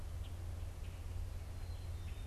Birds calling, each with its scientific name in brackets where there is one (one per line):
Black-capped Chickadee (Poecile atricapillus)